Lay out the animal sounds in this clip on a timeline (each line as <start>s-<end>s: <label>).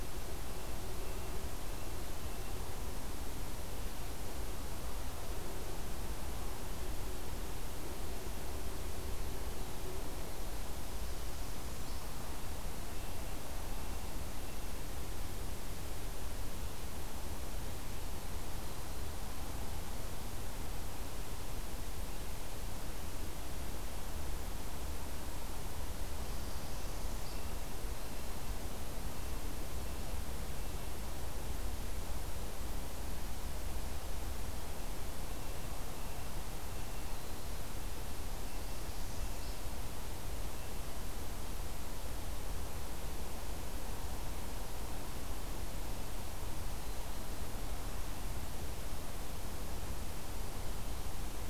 10.6s-12.1s: Northern Parula (Setophaga americana)
25.9s-27.5s: Northern Parula (Setophaga americana)
38.3s-39.6s: Northern Parula (Setophaga americana)